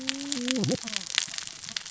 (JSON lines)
{"label": "biophony, cascading saw", "recorder": "SoundTrap 600 or HydroMoth"}